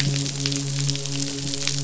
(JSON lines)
{"label": "biophony, midshipman", "recorder": "SoundTrap 500"}